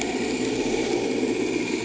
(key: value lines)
label: anthrophony, boat engine
recorder: HydroMoth